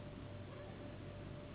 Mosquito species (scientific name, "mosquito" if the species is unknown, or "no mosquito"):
Anopheles gambiae s.s.